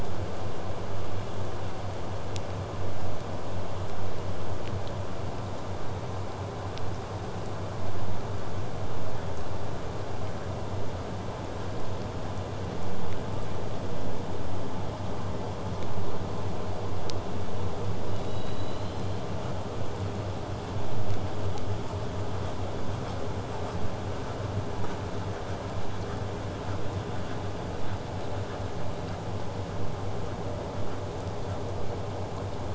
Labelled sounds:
18.0	19.3	killer whale, southern resident, 1.8 to 7.7 kHz
27.7	32.7	vessel noise, 0.04 to 8.0 kHz

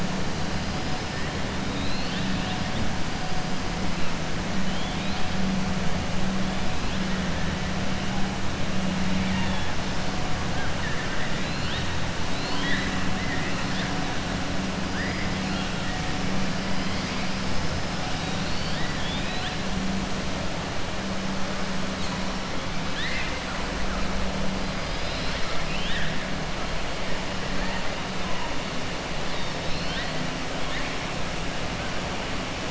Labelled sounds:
1.6	2.6	killer whale, 1.8 to 4.7 kHz
9.1	9.7	killer whale, 0.89 to 3.8 kHz
12.3	13.0	killer whale, 1.0 to 5.2 kHz
17.9	19.6	killer whale, 1.8 to 5.8 kHz
22.8	23.5	killer whale, 1.6 to 5.2 kHz
25.4	26.1	killer whale, 1.3 to 3.9 kHz

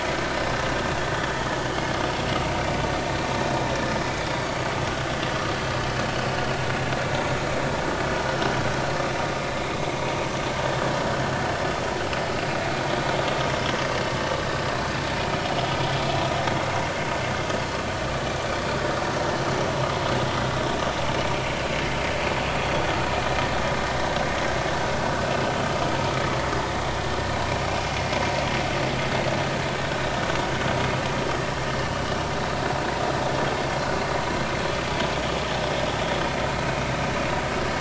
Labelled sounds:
4.3	4.6	vessel noise, 4.4 to 4.6 kHz
12.3	12.6	vessel noise, 4.7 to 4.9 kHz
31.8	32.0	vessel noise, 2.8 to 2.9 kHz
36.6	36.9	vessel noise, 2.5 to 2.6 kHz

